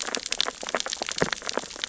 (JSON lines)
{"label": "biophony, sea urchins (Echinidae)", "recorder": "SoundTrap 600 or HydroMoth"}